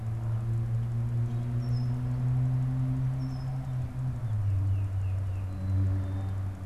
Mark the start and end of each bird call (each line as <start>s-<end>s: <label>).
1.4s-2.1s: Red-winged Blackbird (Agelaius phoeniceus)
3.0s-3.7s: Red-winged Blackbird (Agelaius phoeniceus)
4.2s-5.6s: Tufted Titmouse (Baeolophus bicolor)
5.3s-6.6s: Black-capped Chickadee (Poecile atricapillus)